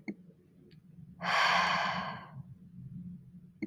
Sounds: Sigh